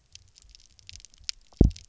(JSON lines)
{"label": "biophony, double pulse", "recorder": "SoundTrap 300"}